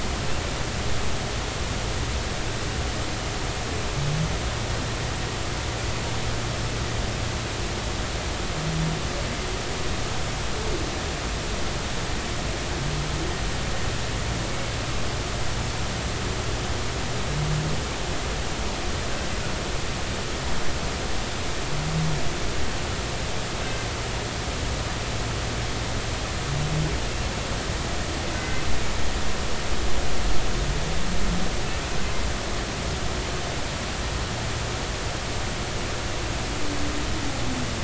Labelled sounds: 28.3	28.6	humpback whale, 1.5 to 2.1 kHz

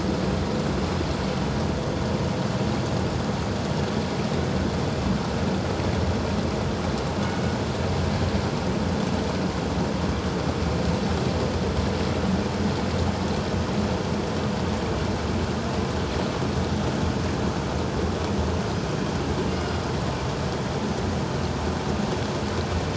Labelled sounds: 19.5	19.8	killer whale, northern resident, G clan, 2.8 to 5.1 kHz

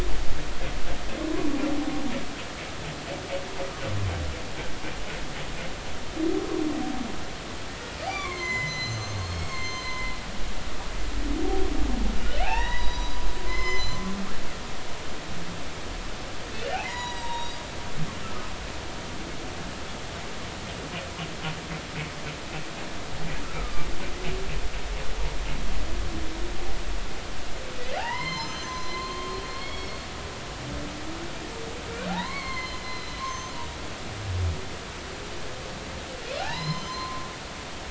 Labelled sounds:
8.1	10.1	humpback whale, 0.96 to 7.3 kHz
10.6	10.9	humpback whale, 3.0 to 3.2 kHz
12.4	14.0	humpback whale, 0.80 to 7.2 kHz
14.6	15.0	humpback whale, 3.0 to 3.1 kHz
16.8	17.6	humpback whale, 0.86 to 6.9 kHz
23.4	23.9	humpback whale, 1.1 to 1.4 kHz
28.0	30.1	humpback whale, 0.80 to 7.3 kHz
32.1	33.5	humpback whale, 0.80 to 6.4 kHz
36.4	37.3	humpback whale, 0.80 to 6.2 kHz

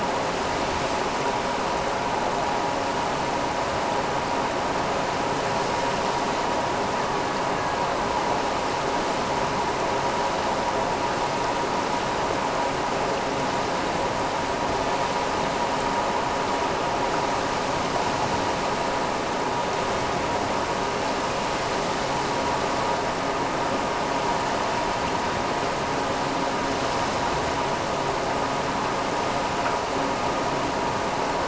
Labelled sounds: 6.9	8.0	killer whale, Bigg's (transient), AT1 transient, 1.3 to 2.0 kHz

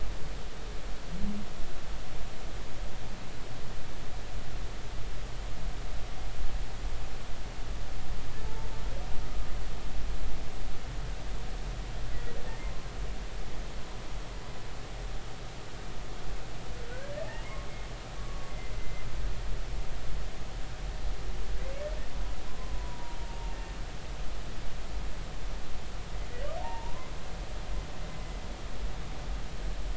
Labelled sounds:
8.4	8.7	humpback whale, 0.83 to 0.93 kHz
12.6	12.9	humpback whale, 0.99 to 1.1 kHz
18.2	19.0	humpback whale, 1.1 to 2.1 kHz
21.5	21.9	humpback whale, 1.9 to 2.3 kHz
22.5	23.5	humpback whale, 0.86 to 1.1 kHz
26.6	27.1	humpback whale, 0.80 to 1.1 kHz

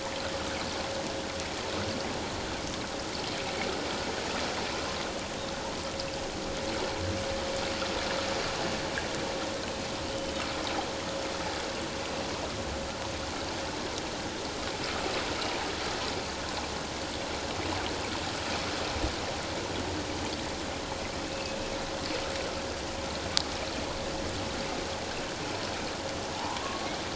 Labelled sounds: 10.1	10.3	humpback whale, 2.9 to 3.1 kHz
21.3	21.6	humpback whale, 2.5 to 2.8 kHz
26.4	26.9	humpback whale, 0.78 to 1.2 kHz

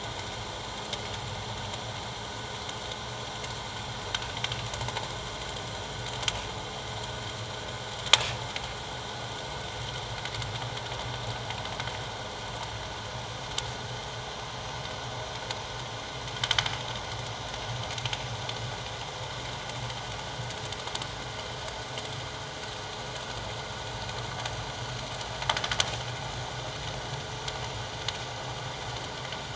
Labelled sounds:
18.0	18.4	vessel noise, 2.6 to 2.8 kHz

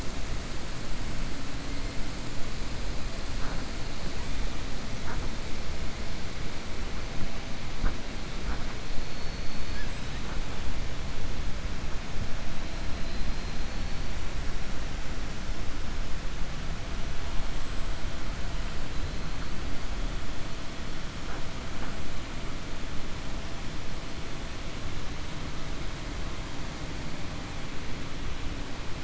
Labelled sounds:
13.0	13.6	killer whale, 4.0 to 5.0 kHz
17.5	18.1	killer whale, 7.4 to 8.0 kHz

